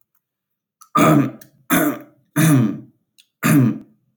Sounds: Throat clearing